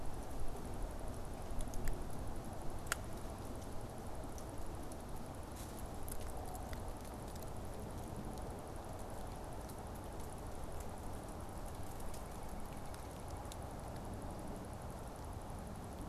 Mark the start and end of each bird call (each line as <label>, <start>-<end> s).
White-breasted Nuthatch (Sitta carolinensis), 11.7-13.7 s